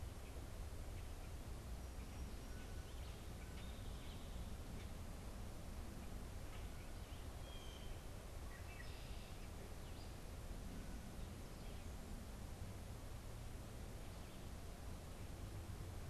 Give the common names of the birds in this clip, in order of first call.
Common Grackle, Blue Jay, Red-winged Blackbird